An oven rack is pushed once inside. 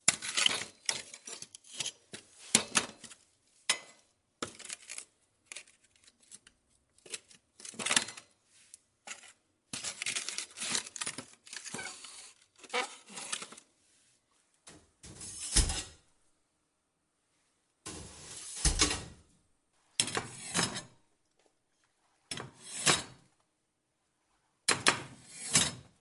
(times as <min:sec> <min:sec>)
0:14.4 0:16.2, 0:17.4 0:19.8